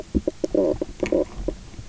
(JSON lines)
{"label": "biophony, knock croak", "recorder": "SoundTrap 300"}